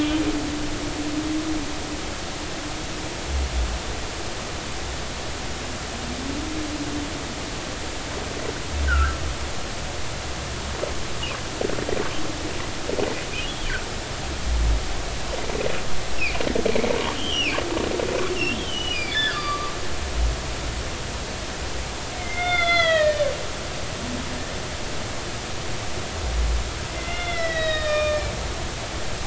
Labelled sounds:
8.9	9.2	humpback whale, 1.3 to 1.7 kHz
13.5	13.7	humpback whale, 2.9 to 3.5 kHz
17.1	17.6	humpback whale, 2.2 to 3.4 kHz
18.5	19.7	humpback whale, 1.1 to 5.0 kHz
22.1	23.3	humpback whale, 1.2 to 6.2 kHz
26.9	28.3	humpback whale, 1.1 to 5.2 kHz

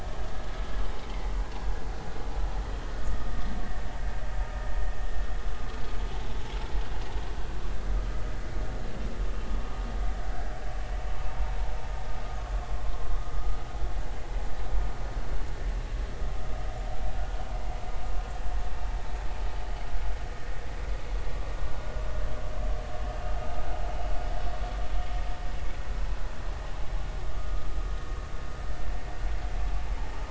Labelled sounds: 3.0	3.3	vessel noise, 1.2 to 1.3 kHz
23.1	23.3	vessel noise, 2.7 to 2.8 kHz

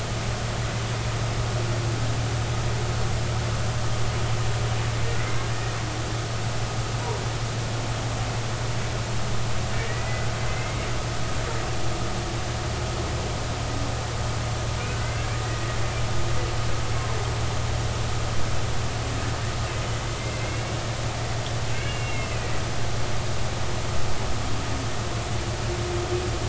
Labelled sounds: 9.9	10.8	humpback whale, 1.8 to 2.2 kHz
15.0	15.2	humpback whale, 1.9 to 2.2 kHz
20.4	20.7	humpback whale, 2.0 to 2.3 kHz
21.7	22.5	humpback whale, 1.5 to 2.9 kHz

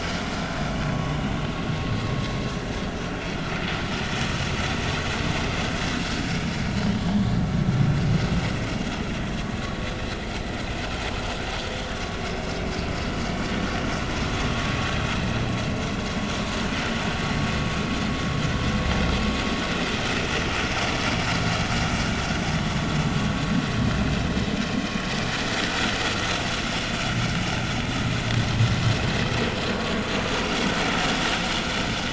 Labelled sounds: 11.9	12.2	vessel noise, 1.1 to 1.2 kHz
26.1	26.9	vessel noise, 5.4 to 6.2 kHz

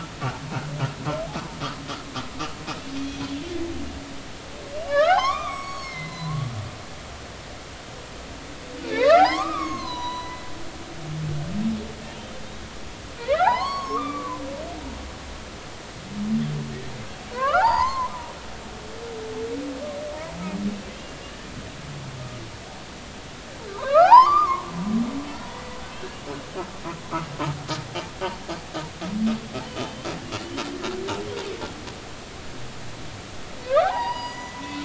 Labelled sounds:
3.0	3.2	humpback whale, 3.3 to 3.4 kHz
4.7	6.4	humpback whale, 0.80 to 7.8 kHz
8.9	10.4	humpback whale, 0.80 to 6.8 kHz
13.2	14.4	humpback whale, 0.80 to 4.5 kHz
17.3	18.1	humpback whale, 0.80 to 5.2 kHz
21.2	21.5	humpback whale, 2.8 to 3.0 kHz
23.7	24.7	humpback whale, 0.80 to 2.5 kHz
25.5	26.2	humpback whale, 1.9 to 2.9 kHz
29.7	30.1	humpback whale, 2.9 to 3.2 kHz
33.7	34.6	humpback whale, 0.80 to 6.9 kHz

